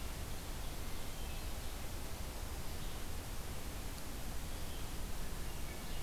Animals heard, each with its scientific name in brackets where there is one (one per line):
Red-eyed Vireo (Vireo olivaceus)